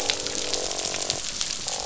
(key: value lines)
label: biophony, croak
recorder: SoundTrap 500